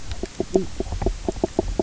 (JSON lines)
{"label": "biophony, knock croak", "recorder": "SoundTrap 300"}